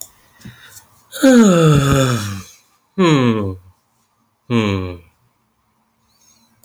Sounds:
Sigh